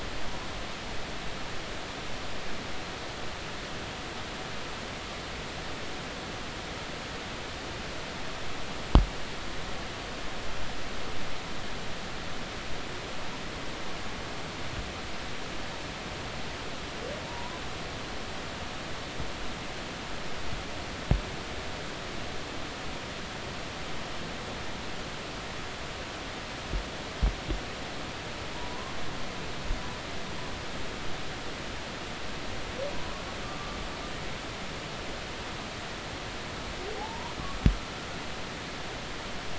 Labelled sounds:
17.3	17.6	humpback whale, 0.90 to 1.1 kHz
28.5	28.9	humpback whale, 0.90 to 1.1 kHz
37.0	37.4	humpback whale, 0.80 to 1.0 kHz

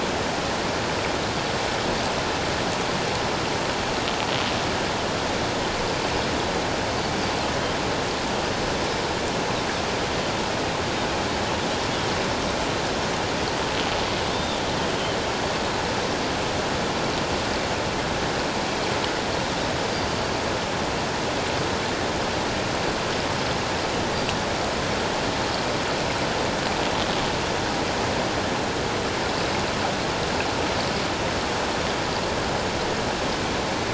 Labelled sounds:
14.3	14.6	Pacific white-sided dolphin, 3.3 to 3.7 kHz

